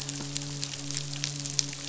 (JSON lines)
{"label": "biophony, midshipman", "recorder": "SoundTrap 500"}